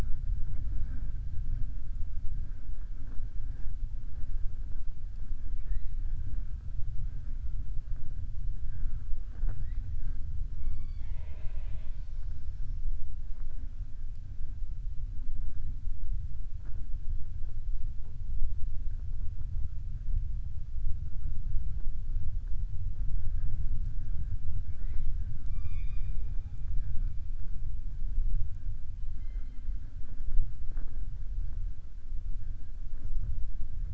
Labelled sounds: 5.4	5.9	killer whale, southern resident, 1.7 to 4.3 kHz
10.5	12.8	killer whale, southern resident, 0.45 to 5.8 kHz

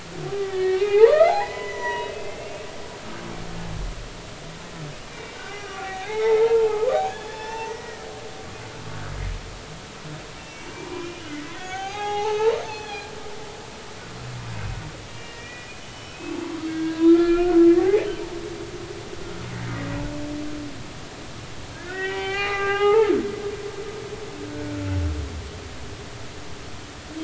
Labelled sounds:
0.4	2.6	humpback whale, 0.80 to 6.0 kHz
5.0	8.1	humpback whale, 0.80 to 5.8 kHz
10.4	13.1	humpback whale, 0.80 to 6.7 kHz
15.1	16.4	humpback whale, 1.8 to 3.0 kHz
16.7	18.0	humpback whale, 0.80 to 3.7 kHz
19.7	20.0	humpback whale, 1.8 to 2.0 kHz
21.7	23.1	humpback whale, 0.80 to 3.3 kHz
24.5	25.0	humpback whale, 1.3 to 1.5 kHz

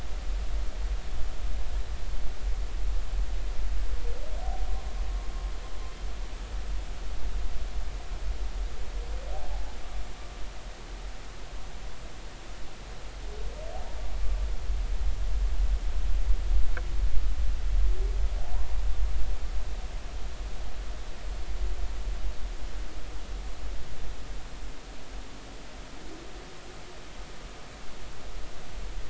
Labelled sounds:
9.5	9.8	humpback whale, 0.80 to 0.90 kHz

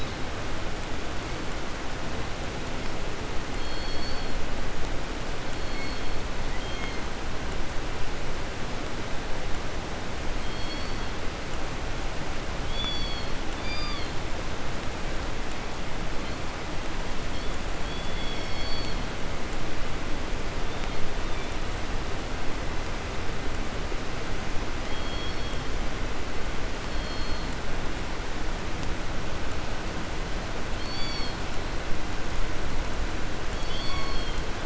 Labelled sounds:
3.5	4.5	killer whale, southern resident, call S17, 2.4 to 5.1 kHz
5.3	7.3	killer whale, southern resident, call S16, 1.5 to 8.0 kHz
10.3	11.3	killer whale, southern resident, 1.5 to 6.3 kHz
12.6	14.4	killer whale, southern resident, 0.87 to 7.1 kHz
16.0	16.5	killer whale, 0.89 to 5.0 kHz
17.2	17.6	killer whale, 1.2 to 4.8 kHz
17.8	19.3	killer whale, southern resident, 1.5 to 5.9 kHz
20.6	21.7	killer whale, 1.6 to 4.7 kHz
24.6	25.9	killer whale, southern resident, call S16, 2.6 to 5.9 kHz
26.6	27.7	killer whale, southern resident, call S16, 2.7 to 5.6 kHz
30.7	31.6	killer whale, southern resident, 1.6 to 8.0 kHz
33.3	34.6	killer whale, southern resident, 0.56 to 7.1 kHz

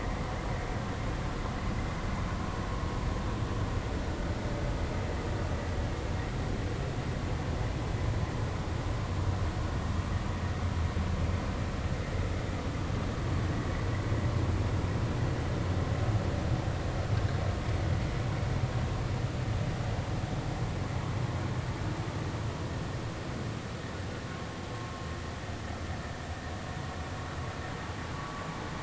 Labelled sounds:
28.2	28.4	vessel noise, 0.99 to 1.2 kHz

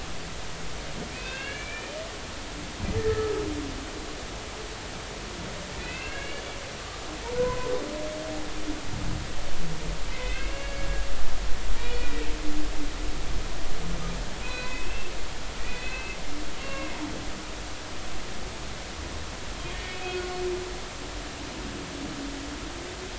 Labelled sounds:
1.1	2.0	humpback whale, 1.5 to 3.7 kHz
3.0	3.3	humpback whale, 1.2 to 1.9 kHz
5.8	6.4	humpback whale, 1.4 to 2.9 kHz
7.2	7.7	humpback whale, 0.86 to 1.1 kHz
10.1	11.1	humpback whale, 1.6 to 2.8 kHz
11.8	12.1	humpback whale, 2.3 to 2.5 kHz
14.4	16.2	humpback whale, 1.5 to 4.1 kHz
16.6	16.9	humpback whale, 1.0 to 2.8 kHz
19.9	20.3	humpback whale, 1.4 to 2.6 kHz

